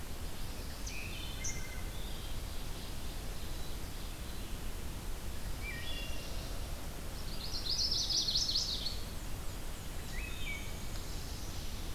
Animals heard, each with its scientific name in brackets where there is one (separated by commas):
Ovenbird (Seiurus aurocapilla), Black-and-white Warbler (Mniotilta varia), Chestnut-sided Warbler (Setophaga pensylvanica), Wood Thrush (Hylocichla mustelina)